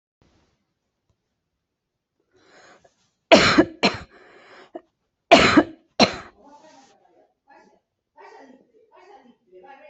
{"expert_labels": [{"quality": "ok", "cough_type": "dry", "dyspnea": false, "wheezing": false, "stridor": false, "choking": false, "congestion": false, "nothing": true, "diagnosis": "lower respiratory tract infection", "severity": "mild"}], "age": 43, "gender": "female", "respiratory_condition": false, "fever_muscle_pain": false, "status": "COVID-19"}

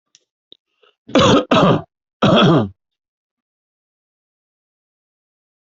{"expert_labels": [{"quality": "good", "cough_type": "dry", "dyspnea": false, "wheezing": false, "stridor": false, "choking": false, "congestion": false, "nothing": true, "diagnosis": "upper respiratory tract infection", "severity": "mild"}]}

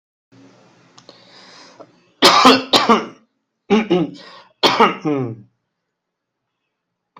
{"expert_labels": [{"quality": "ok", "cough_type": "dry", "dyspnea": false, "wheezing": false, "stridor": false, "choking": false, "congestion": false, "nothing": true, "diagnosis": "COVID-19", "severity": "mild"}], "age": 33, "gender": "male", "respiratory_condition": false, "fever_muscle_pain": false, "status": "healthy"}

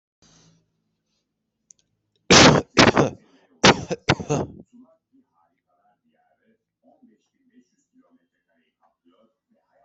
{"expert_labels": [{"quality": "good", "cough_type": "dry", "dyspnea": false, "wheezing": false, "stridor": false, "choking": false, "congestion": false, "nothing": true, "diagnosis": "upper respiratory tract infection", "severity": "mild"}], "age": 41, "gender": "male", "respiratory_condition": false, "fever_muscle_pain": false, "status": "healthy"}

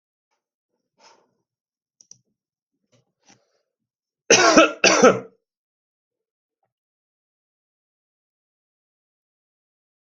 {"expert_labels": [{"quality": "good", "cough_type": "unknown", "dyspnea": false, "wheezing": false, "stridor": false, "choking": false, "congestion": false, "nothing": true, "diagnosis": "healthy cough", "severity": "pseudocough/healthy cough"}], "age": 22, "gender": "male", "respiratory_condition": false, "fever_muscle_pain": false, "status": "healthy"}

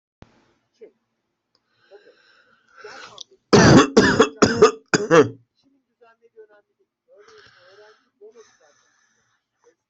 {"expert_labels": [{"quality": "ok", "cough_type": "wet", "dyspnea": true, "wheezing": true, "stridor": false, "choking": false, "congestion": false, "nothing": true, "diagnosis": "obstructive lung disease", "severity": "severe"}], "age": 29, "gender": "male", "respiratory_condition": false, "fever_muscle_pain": false, "status": "COVID-19"}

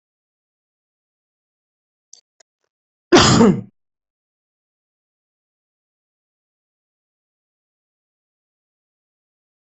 {"expert_labels": [{"quality": "ok", "cough_type": "unknown", "dyspnea": false, "wheezing": false, "stridor": false, "choking": false, "congestion": false, "nothing": true, "diagnosis": "lower respiratory tract infection", "severity": "mild"}, {"quality": "good", "cough_type": "dry", "dyspnea": false, "wheezing": false, "stridor": false, "choking": false, "congestion": false, "nothing": true, "diagnosis": "upper respiratory tract infection", "severity": "mild"}, {"quality": "good", "cough_type": "dry", "dyspnea": false, "wheezing": false, "stridor": false, "choking": false, "congestion": false, "nothing": true, "diagnosis": "healthy cough", "severity": "pseudocough/healthy cough"}, {"quality": "good", "cough_type": "dry", "dyspnea": false, "wheezing": false, "stridor": false, "choking": false, "congestion": false, "nothing": true, "diagnosis": "healthy cough", "severity": "pseudocough/healthy cough"}], "age": 43, "gender": "male", "respiratory_condition": false, "fever_muscle_pain": false, "status": "symptomatic"}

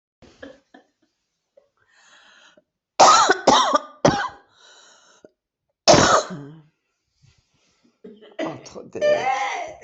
{"expert_labels": [{"quality": "ok", "cough_type": "dry", "dyspnea": false, "wheezing": true, "stridor": false, "choking": false, "congestion": false, "nothing": false, "diagnosis": "COVID-19", "severity": "mild"}], "age": 51, "gender": "female", "respiratory_condition": false, "fever_muscle_pain": false, "status": "COVID-19"}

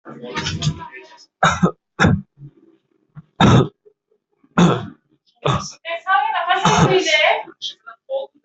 {"expert_labels": [{"quality": "good", "cough_type": "dry", "dyspnea": false, "wheezing": false, "stridor": false, "choking": false, "congestion": false, "nothing": true, "diagnosis": "upper respiratory tract infection", "severity": "mild"}], "age": 30, "gender": "male", "respiratory_condition": true, "fever_muscle_pain": false, "status": "symptomatic"}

